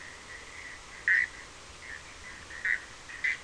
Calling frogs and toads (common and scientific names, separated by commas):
Bischoff's tree frog (Boana bischoffi)